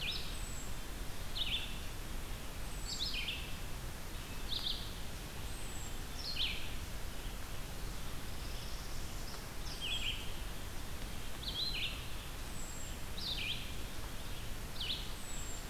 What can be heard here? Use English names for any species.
Red-eyed Vireo, Hermit Thrush, Northern Parula